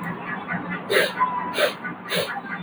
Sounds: Sniff